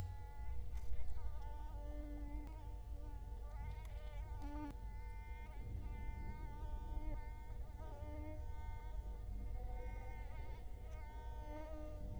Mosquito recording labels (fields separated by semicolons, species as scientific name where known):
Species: Culex quinquefasciatus; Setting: cup